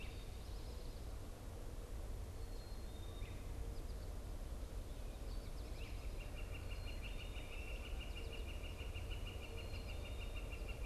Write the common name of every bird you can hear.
Great Crested Flycatcher, Black-capped Chickadee, Northern Flicker